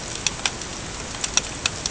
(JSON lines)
{"label": "ambient", "recorder": "HydroMoth"}